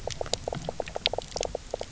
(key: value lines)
label: biophony, knock croak
recorder: SoundTrap 300